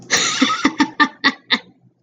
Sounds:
Laughter